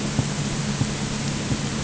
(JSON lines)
{"label": "anthrophony, boat engine", "recorder": "HydroMoth"}